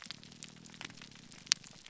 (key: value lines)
label: biophony
recorder: SoundTrap 300